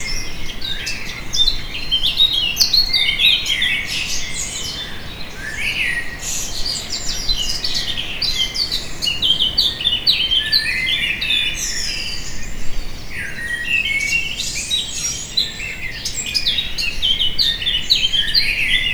Are there lions around?
no